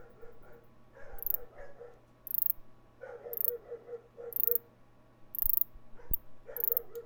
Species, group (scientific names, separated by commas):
Ancistrura nigrovittata, Orthoptera